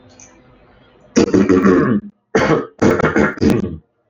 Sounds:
Throat clearing